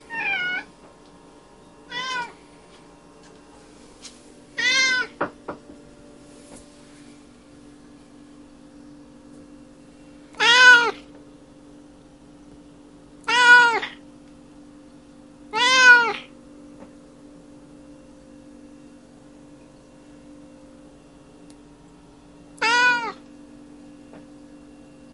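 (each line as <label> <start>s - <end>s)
A cat is meowing. 0.0s - 0.7s
A cat meows. 1.8s - 2.4s
A cat meows. 4.5s - 5.1s
Knocking sounds. 5.2s - 5.6s
A cat meows. 10.3s - 11.0s
A cat meows. 13.2s - 13.9s
A cat meows. 15.5s - 16.3s
A cat meows. 22.6s - 23.2s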